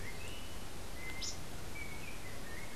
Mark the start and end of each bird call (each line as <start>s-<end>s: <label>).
0.0s-2.8s: Yellow-backed Oriole (Icterus chrysater)